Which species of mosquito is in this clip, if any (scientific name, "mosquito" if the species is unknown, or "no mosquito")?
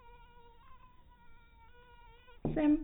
mosquito